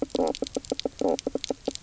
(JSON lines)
{"label": "biophony, knock croak", "recorder": "SoundTrap 300"}